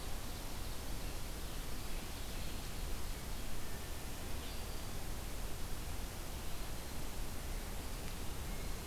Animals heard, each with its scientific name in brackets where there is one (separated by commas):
Black-throated Green Warbler (Setophaga virens)